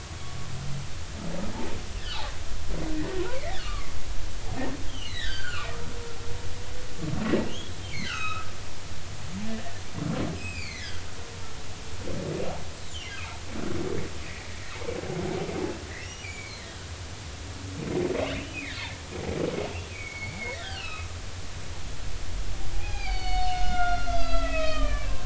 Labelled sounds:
3.3	3.9	humpback whale, 1.1 to 2.4 kHz
4.9	5.8	humpback whale, 1.1 to 4.8 kHz
7.5	8.5	humpback whale, 1.2 to 5.3 kHz
9.5	11.0	humpback whale, 1.5 to 5.2 kHz
15.9	16.6	humpback whale, 1.6 to 5.9 kHz
18.1	18.8	humpback whale, 1.7 to 3.0 kHz
19.9	21.1	humpback whale, 1.1 to 4.4 kHz
21.6	25.2	humpback whale, 0.80 to 6.6 kHz

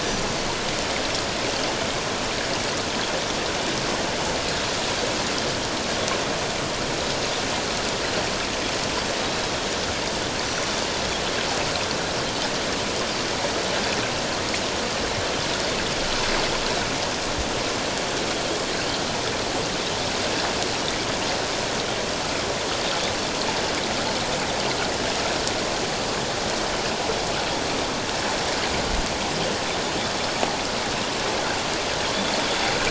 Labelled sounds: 10.4	10.7	Pacific white-sided dolphin, 5.8 to 5.9 kHz

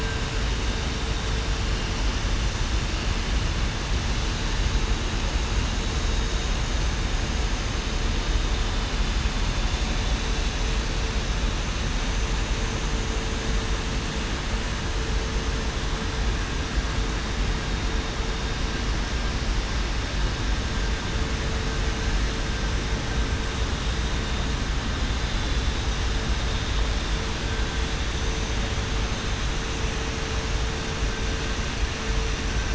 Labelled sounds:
16.3	16.7	vessel noise, 5.9 to 6.0 kHz
28.1	28.6	vessel noise, 6.0 to 6.1 kHz
29.6	30.0	vessel noise, 6.0 to 6.1 kHz

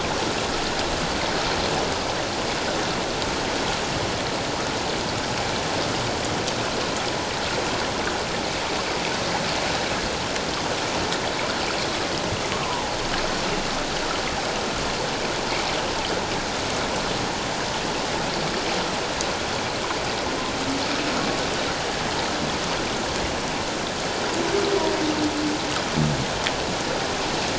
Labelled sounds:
12.6	12.9	humpback whale, 0.78 to 1.1 kHz

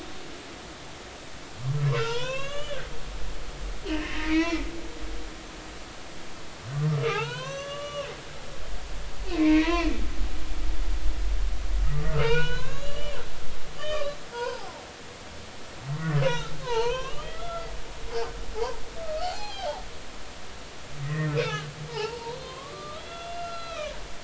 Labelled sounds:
2.0	2.8	humpback whale, 0.86 to 6.4 kHz
3.9	4.7	humpback whale, 1.2 to 4.1 kHz
7.0	8.1	humpback whale, 0.80 to 6.4 kHz
9.3	9.9	humpback whale, 0.93 to 2.8 kHz
11.8	13.2	humpback whale, 0.86 to 6.9 kHz
13.8	14.7	humpback whale, 0.80 to 3.2 kHz
16.0	17.7	humpback whale, 0.83 to 3.9 kHz
18.6	18.8	humpback whale, 0.80 to 1.1 kHz
19.2	19.8	humpback whale, 0.80 to 4.7 kHz
21.0	23.9	humpback whale, 0.80 to 4.9 kHz

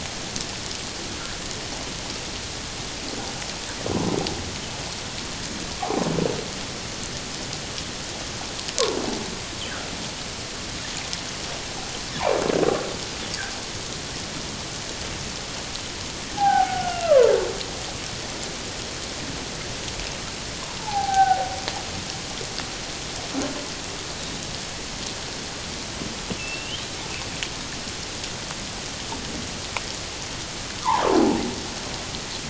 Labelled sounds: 5.8	6.0	humpback whale, 0.78 to 1.2 kHz
16.4	17.4	humpback whale, 0.78 to 1.7 kHz
20.8	21.5	humpback whale, 0.78 to 1.6 kHz
24.1	24.4	humpback whale, 3.7 to 4.1 kHz
26.4	26.8	humpback whale, 2.6 to 3.3 kHz

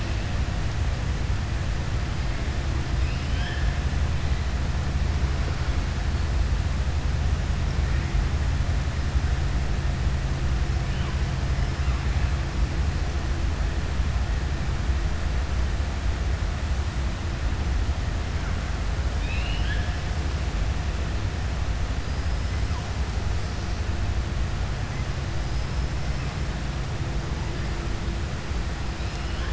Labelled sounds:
2.9	3.7	killer whale, southern resident, 1.6 to 5.2 kHz
19.1	19.9	killer whale, southern resident, 1.6 to 4.3 kHz

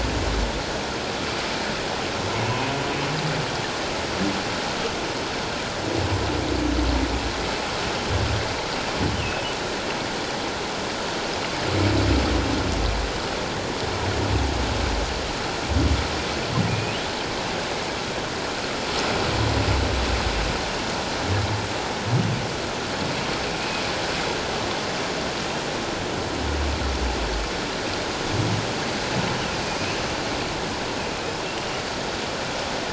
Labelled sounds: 2.4	2.7	humpback whale, 0.78 to 1.1 kHz
9.1	9.4	humpback whale, 2.5 to 3.2 kHz
16.7	17.0	humpback whale, 2.3 to 2.8 kHz
23.5	23.8	humpback whale, 2.4 to 2.6 kHz

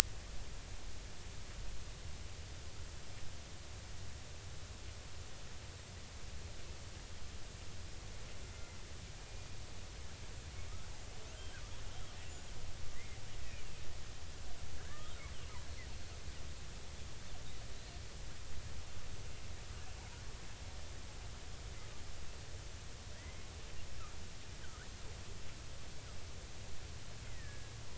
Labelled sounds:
8.4	8.8	killer whale, Bigg's (transient), 2.0 to 2.1 kHz
13.0	13.2	killer whale, Bigg's (transient), 1.9 to 2.4 kHz
14.8	15.0	killer whale, Bigg's (transient), 1.4 to 1.9 kHz
23.1	23.5	killer whale, Bigg's (transient), 1.6 to 2.2 kHz
27.2	27.7	killer whale, Bigg's (transient), 1.6 to 2.1 kHz

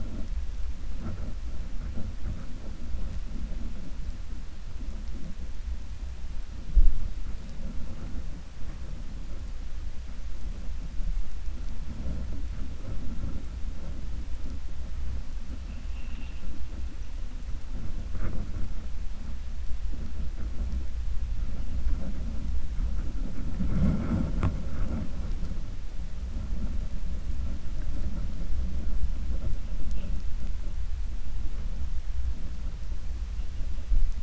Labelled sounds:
15.6	16.5	vessel noise, 1.9 to 3.8 kHz

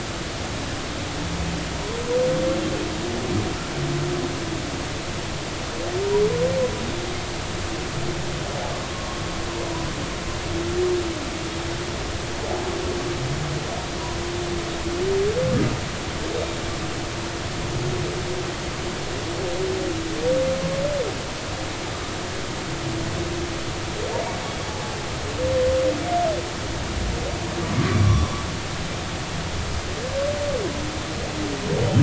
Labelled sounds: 8.9	9.2	humpback whale, 0.90 to 1.2 kHz
16.3	16.6	humpback whale, 3.7 to 3.8 kHz
24.6	25.0	humpback whale, 0.80 to 0.90 kHz
27.9	28.4	humpback whale, 0.99 to 5.8 kHz

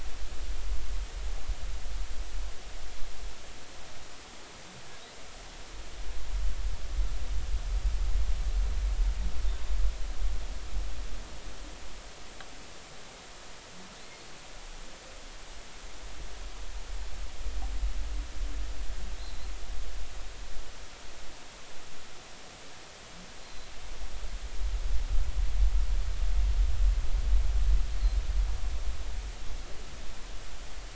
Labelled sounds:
19.2	19.5	humpback whale, 3.8 to 4.2 kHz
23.4	23.7	humpback whale, 3.9 to 4.3 kHz

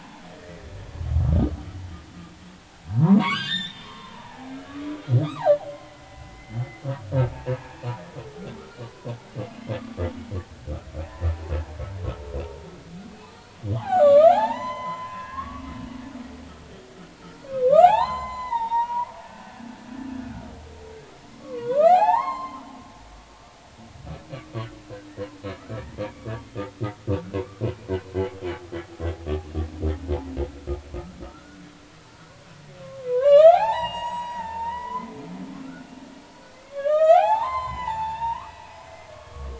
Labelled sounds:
0.0	0.6	humpback whale, 0.80 to 2.0 kHz
2.9	4.5	humpback whale, 0.80 to 7.3 kHz
5.2	6.6	humpback whale, 0.80 to 2.2 kHz
7.2	7.5	humpback whale, 0.83 to 0.96 kHz
8.8	9.1	humpback whale, 0.93 to 1.2 kHz
9.8	10.0	humpback whale, 1.1 to 1.3 kHz
11.0	11.3	humpback whale, 1.6 to 2.0 kHz
13.2	15.6	humpback whale, 0.80 to 8.0 kHz
17.2	19.6	humpback whale, 0.80 to 7.4 kHz
21.3	22.7	humpback whale, 0.80 to 4.4 kHz
25.5	26.3	humpback whale, 1.2 to 2.5 kHz
31.2	31.6	humpback whale, 1.2 to 1.5 kHz
32.8	39.5	humpback whale, 0.80 to 7.9 kHz

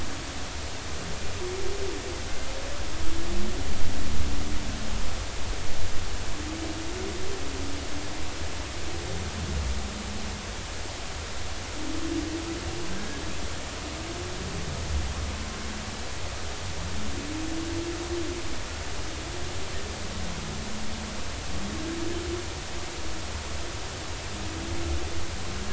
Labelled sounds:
12.9	13.2	killer whale, Bigg's (transient), 1.5 to 1.7 kHz

